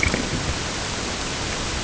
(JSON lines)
{"label": "ambient", "recorder": "HydroMoth"}